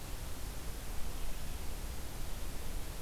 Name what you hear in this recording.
Red-eyed Vireo